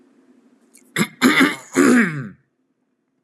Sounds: Throat clearing